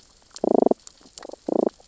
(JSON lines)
{"label": "biophony, damselfish", "recorder": "SoundTrap 600 or HydroMoth"}